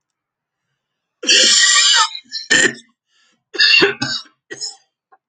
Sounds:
Cough